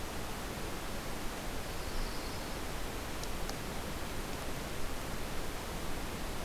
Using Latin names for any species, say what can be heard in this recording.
Setophaga coronata